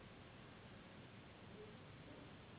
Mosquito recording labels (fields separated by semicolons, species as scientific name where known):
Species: Anopheles gambiae s.s.; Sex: female; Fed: unfed; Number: one; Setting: insect culture